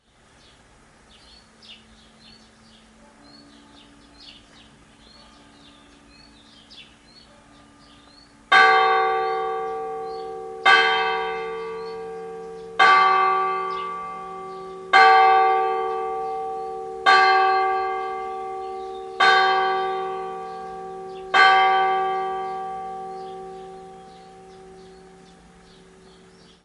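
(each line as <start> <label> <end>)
0.0 A church bell rings faintly in the distance. 26.6
0.0 A church bell rings loudly and repeatedly nearby. 26.6
0.0 Birds chirping in the distance. 26.6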